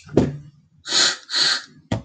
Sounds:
Sneeze